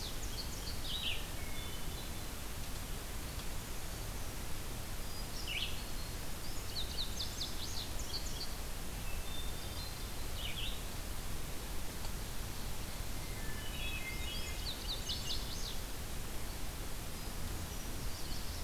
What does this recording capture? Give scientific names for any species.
Passerina cyanea, Vireo olivaceus, Catharus guttatus